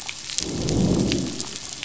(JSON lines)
{"label": "biophony, growl", "recorder": "SoundTrap 500"}